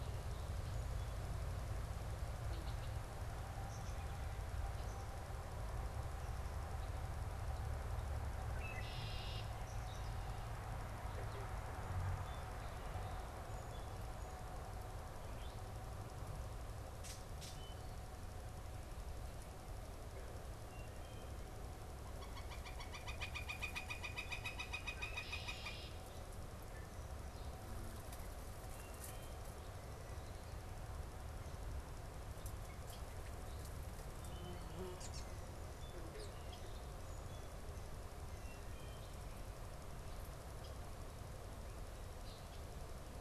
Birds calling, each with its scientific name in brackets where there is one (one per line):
Gray Catbird (Dumetella carolinensis)
Northern Flicker (Colaptes auratus)
Red-winged Blackbird (Agelaius phoeniceus)
Song Sparrow (Melospiza melodia)
Wood Thrush (Hylocichla mustelina)
unidentified bird